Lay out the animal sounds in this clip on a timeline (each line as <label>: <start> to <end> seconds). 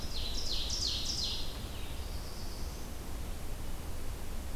Ovenbird (Seiurus aurocapilla): 0.0 to 1.6 seconds
Black-throated Blue Warbler (Setophaga caerulescens): 1.6 to 3.0 seconds